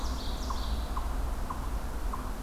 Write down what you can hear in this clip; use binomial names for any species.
Seiurus aurocapilla, Tamias striatus